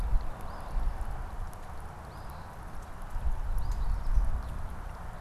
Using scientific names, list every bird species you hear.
Sayornis phoebe